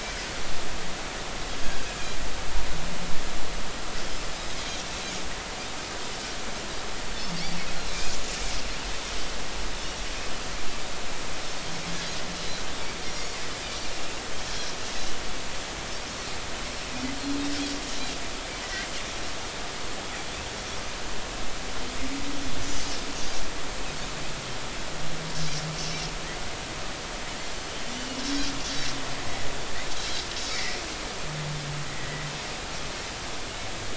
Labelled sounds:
18.6	18.9	Pacific white-sided dolphin, 1.9 to 2.0 kHz
30.5	30.8	Pacific white-sided dolphin, 1.9 to 2.4 kHz
31.9	32.3	Pacific white-sided dolphin, 1.9 to 2.1 kHz

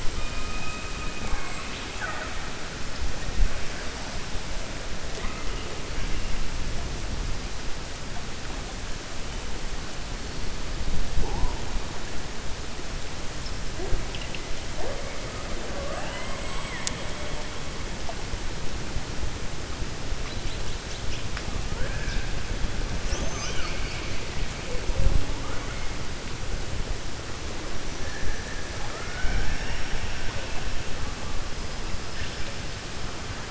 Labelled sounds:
15.6	17.0	killer whale, 0.53 to 3.9 kHz
21.7	22.3	killer whale, 0.51 to 2.6 kHz

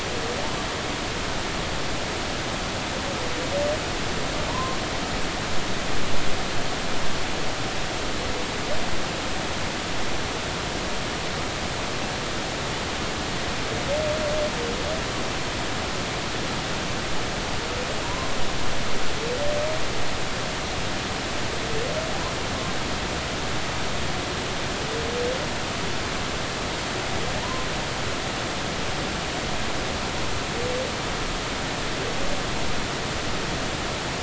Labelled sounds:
4.5	4.8	humpback whale, 0.90 to 1.1 kHz
18.0	18.3	humpback whale, 0.93 to 1.1 kHz
27.4	27.7	humpback whale, 0.90 to 1.1 kHz

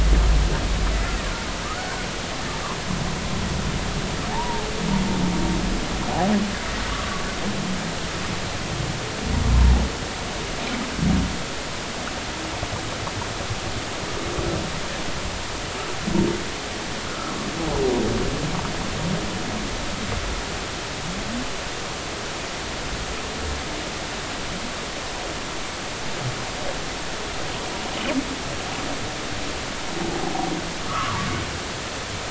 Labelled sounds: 0.9	1.2	humpback whale, 2.0 to 2.1 kHz
4.3	4.7	humpback whale, 0.80 to 1.1 kHz
6.9	7.2	humpback whale, 1.1 to 1.4 kHz
17.1	17.3	humpback whale, 1.2 to 1.5 kHz
30.9	31.3	humpback whale, 0.86 to 1.5 kHz

